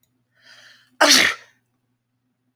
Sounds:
Sneeze